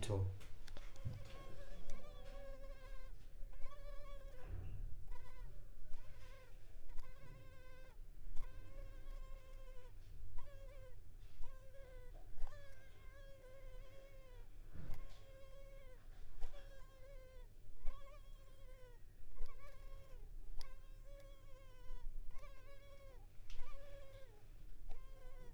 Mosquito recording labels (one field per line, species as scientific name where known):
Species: Culex pipiens complex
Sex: female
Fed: unfed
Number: one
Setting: cup